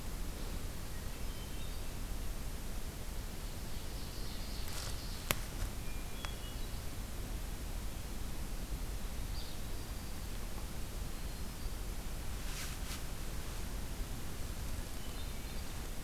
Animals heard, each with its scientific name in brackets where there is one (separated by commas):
Hermit Thrush (Catharus guttatus), Ovenbird (Seiurus aurocapilla), American Robin (Turdus migratorius), Winter Wren (Troglodytes hiemalis)